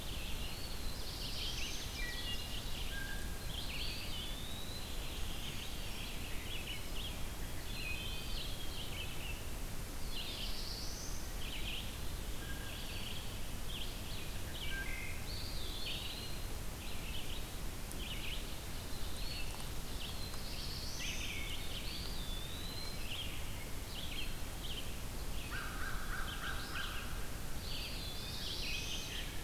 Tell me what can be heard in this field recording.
Red-eyed Vireo, Eastern Wood-Pewee, Black-throated Blue Warbler, Ovenbird, Wood Thrush, Blue Jay, Brown Creeper, American Crow